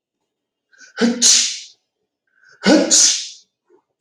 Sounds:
Sneeze